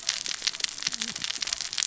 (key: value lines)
label: biophony, cascading saw
recorder: SoundTrap 600 or HydroMoth